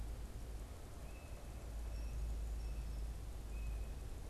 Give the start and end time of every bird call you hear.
[0.92, 4.02] unidentified bird

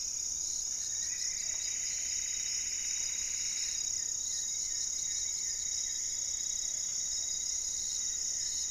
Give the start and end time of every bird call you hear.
[0.00, 1.52] unidentified bird
[0.00, 8.70] Goeldi's Antbird (Akletos goeldii)
[0.82, 4.02] Plumbeous Antbird (Myrmelastes hyperythrus)
[4.02, 8.70] Black-faced Antthrush (Formicarius analis)
[6.42, 7.52] Plumbeous Pigeon (Patagioenas plumbea)

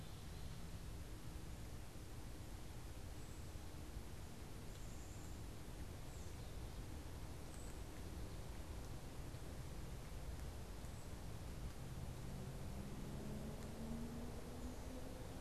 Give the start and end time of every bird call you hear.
[4.60, 5.70] Black-capped Chickadee (Poecile atricapillus)
[7.30, 8.00] Cedar Waxwing (Bombycilla cedrorum)

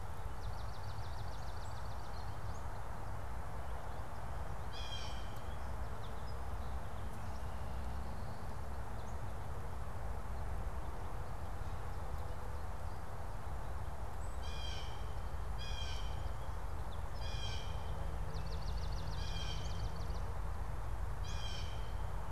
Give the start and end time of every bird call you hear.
[0.00, 2.70] Swamp Sparrow (Melospiza georgiana)
[4.60, 5.30] Blue Jay (Cyanocitta cristata)
[14.20, 22.31] Blue Jay (Cyanocitta cristata)
[18.30, 20.30] Swamp Sparrow (Melospiza georgiana)

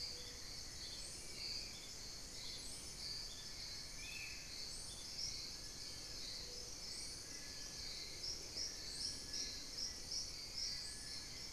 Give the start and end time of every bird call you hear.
[0.00, 10.22] Hauxwell's Thrush (Turdus hauxwelli)
[2.72, 11.52] Long-billed Woodcreeper (Nasica longirostris)
[3.72, 4.62] Spot-winged Antshrike (Pygiptila stellaris)
[9.72, 11.52] Black-faced Antthrush (Formicarius analis)

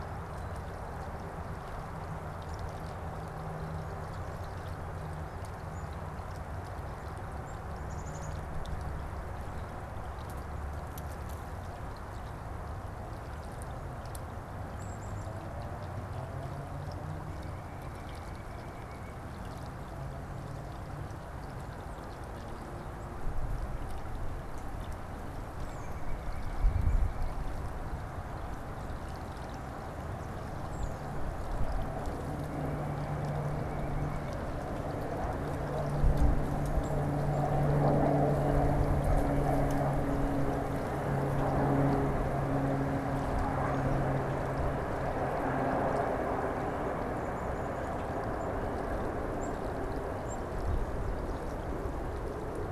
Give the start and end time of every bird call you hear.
[7.57, 8.37] Black-capped Chickadee (Poecile atricapillus)
[14.57, 15.47] Black-capped Chickadee (Poecile atricapillus)
[16.87, 19.37] White-breasted Nuthatch (Sitta carolinensis)
[25.57, 25.97] Tufted Titmouse (Baeolophus bicolor)
[25.57, 27.67] White-breasted Nuthatch (Sitta carolinensis)
[30.57, 31.27] Tufted Titmouse (Baeolophus bicolor)
[47.07, 50.67] Black-capped Chickadee (Poecile atricapillus)

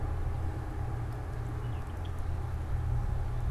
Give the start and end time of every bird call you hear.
[1.46, 1.96] Baltimore Oriole (Icterus galbula)

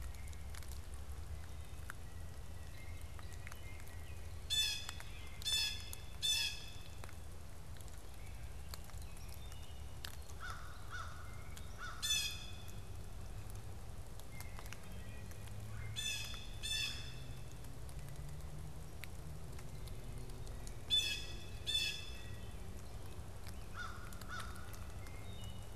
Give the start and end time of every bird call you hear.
[2.36, 7.16] Blue Jay (Cyanocitta cristata)
[9.16, 9.46] Hairy Woodpecker (Dryobates villosus)
[10.26, 12.46] American Crow (Corvus brachyrhynchos)
[11.96, 12.86] Blue Jay (Cyanocitta cristata)
[14.26, 14.66] Blue Jay (Cyanocitta cristata)
[14.66, 15.46] Wood Thrush (Hylocichla mustelina)
[15.76, 17.56] Blue Jay (Cyanocitta cristata)
[16.16, 17.26] Red-bellied Woodpecker (Melanerpes carolinus)
[20.76, 22.66] Blue Jay (Cyanocitta cristata)
[23.56, 25.06] American Crow (Corvus brachyrhynchos)
[25.06, 25.76] Wood Thrush (Hylocichla mustelina)

